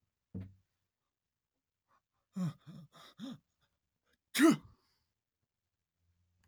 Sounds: Sneeze